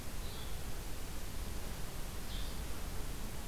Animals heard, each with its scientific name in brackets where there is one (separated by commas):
Blue-headed Vireo (Vireo solitarius)